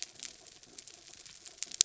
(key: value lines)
label: anthrophony, mechanical
recorder: SoundTrap 300